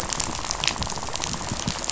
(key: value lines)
label: biophony, rattle
recorder: SoundTrap 500